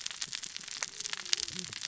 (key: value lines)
label: biophony, cascading saw
recorder: SoundTrap 600 or HydroMoth